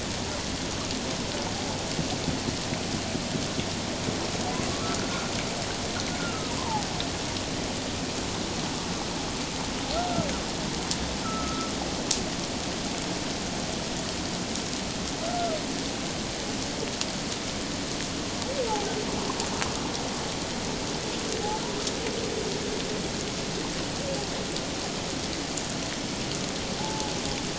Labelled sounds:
4.7	5.0	humpback whale, 1.1 to 1.4 kHz
6.2	6.9	humpback whale, 0.78 to 1.5 kHz
11.2	11.7	humpback whale, 1.2 to 1.4 kHz
15.2	15.6	humpback whale, 1.2 to 1.5 kHz
26.8	27.1	humpback whale, 0.78 to 0.94 kHz

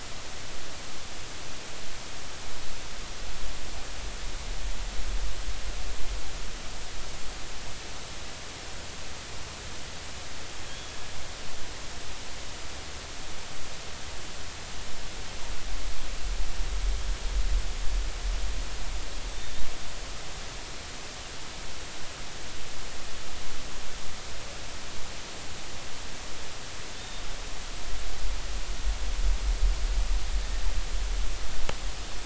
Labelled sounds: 10.7	10.9	killer whale, northern resident, G clan, GG subclan, 3.1 to 3.4 kHz
26.9	27.2	killer whale, northern resident, G clan, GG subclan, 3.5 to 3.7 kHz

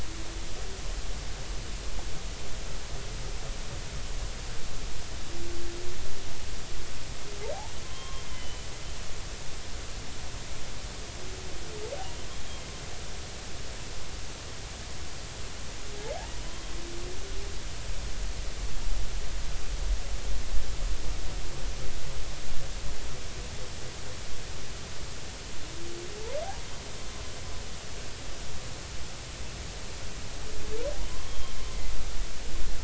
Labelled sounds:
7.8	8.7	humpback whale, 0.99 to 3.2 kHz
12.3	12.7	humpback whale, 3.1 to 3.4 kHz
31.2	31.6	humpback whale, 3.1 to 3.3 kHz

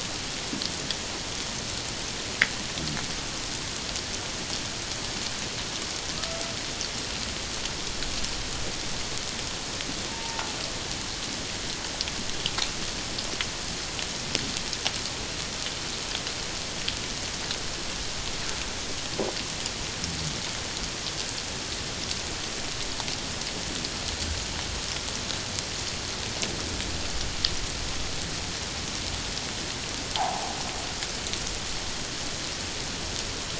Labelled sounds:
10.1	10.6	killer whale, Bigg's (transient), 0.81 to 1.0 kHz

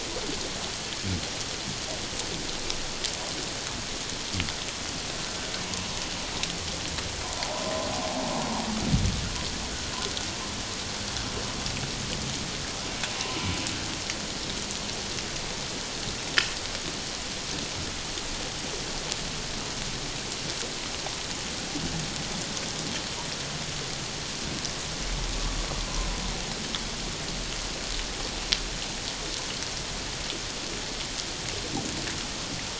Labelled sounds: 25.7	26.1	humpback whale, 0.94 to 1.2 kHz

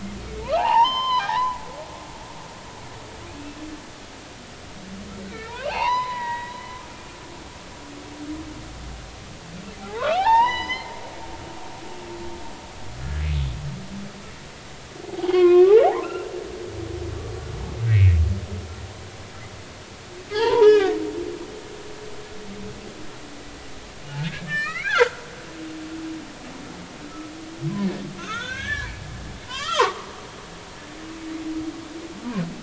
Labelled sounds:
0.4	1.6	humpback whale, 0.80 to 5.2 kHz
5.3	6.8	humpback whale, 0.80 to 4.1 kHz
9.8	10.9	humpback whale, 0.80 to 6.2 kHz
15.1	16.3	humpback whale, 0.80 to 3.3 kHz
17.9	18.1	humpback whale, 2.0 to 2.7 kHz
20.3	21.0	humpback whale, 0.80 to 3.5 kHz
24.4	25.2	humpback whale, 1.2 to 4.2 kHz
28.2	30.1	humpback whale, 0.80 to 4.2 kHz

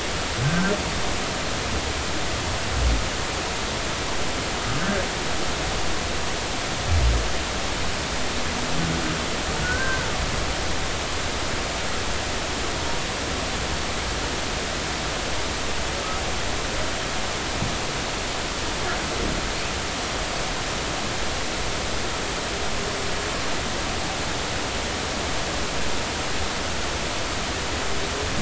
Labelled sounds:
0.4	0.7	humpback whale, 1.5 to 1.6 kHz
4.8	5.0	humpback whale, 1.5 to 1.8 kHz
9.6	10.1	humpback whale, 1.4 to 1.6 kHz

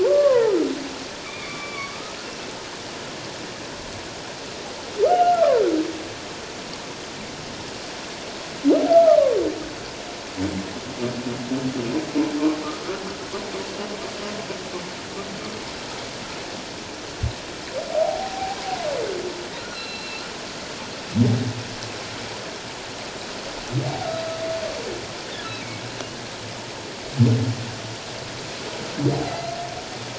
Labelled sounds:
0.0	0.5	humpback whale, 0.81 to 1.2 kHz
1.2	2.2	humpback whale, 1.1 to 2.5 kHz
5.0	5.6	humpback whale, 0.91 to 2.9 kHz
8.9	9.2	humpback whale, 1.1 to 1.4 kHz
17.9	18.6	humpback whale, 0.78 to 0.88 kHz
19.6	20.3	humpback whale, 1.2 to 4.3 kHz
23.9	24.1	humpback whale, 0.78 to 0.94 kHz
29.1	29.5	humpback whale, 0.78 to 4.2 kHz

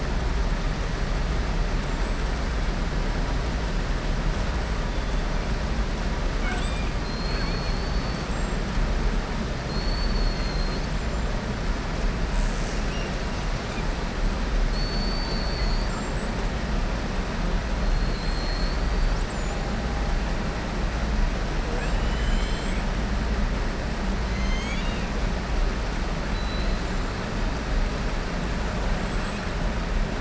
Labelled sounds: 6.3	8.2	killer whale, southern resident, 0.73 to 5.1 kHz
9.6	10.9	killer whale, southern resident, 4.2 to 4.6 kHz
14.6	15.9	killer whale, southern resident, 4.1 to 4.7 kHz
17.9	18.8	killer whale, southern resident, 3.3 to 4.7 kHz

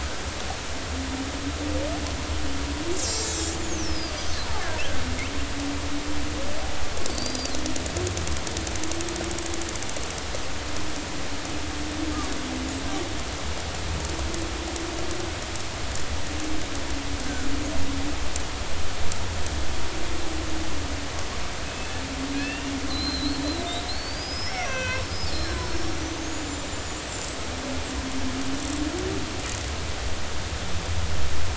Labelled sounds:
3.0	4.2	killer whale, Bigg's (transient), 3.3 to 8.0 kHz
7.1	7.5	killer whale, Bigg's (transient), 4.4 to 4.9 kHz
21.6	22.0	killer whale, Bigg's (transient), 2.5 to 2.7 kHz
22.3	25.4	killer whale, Bigg's (transient), 1.5 to 6.0 kHz
25.7	27.0	killer whale, Bigg's (transient), 3.9 to 7.3 kHz

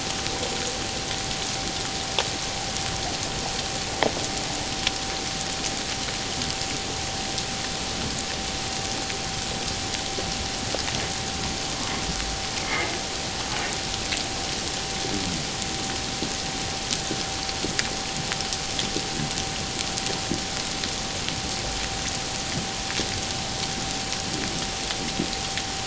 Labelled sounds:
12.6	12.9	humpback whale, 2.0 to 2.2 kHz

